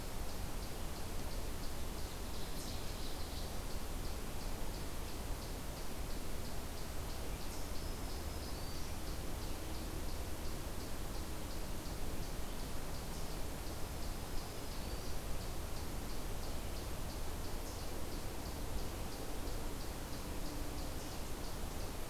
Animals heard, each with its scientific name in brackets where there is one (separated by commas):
Eastern Chipmunk (Tamias striatus), Black-throated Green Warbler (Setophaga virens), Ovenbird (Seiurus aurocapilla)